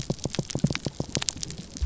{"label": "biophony, pulse", "recorder": "SoundTrap 300"}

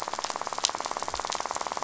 {"label": "biophony, rattle", "recorder": "SoundTrap 500"}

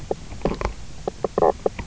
{"label": "biophony, knock croak", "recorder": "SoundTrap 300"}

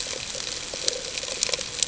{"label": "ambient", "recorder": "HydroMoth"}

